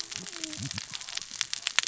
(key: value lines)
label: biophony, cascading saw
recorder: SoundTrap 600 or HydroMoth